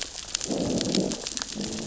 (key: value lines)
label: biophony, growl
recorder: SoundTrap 600 or HydroMoth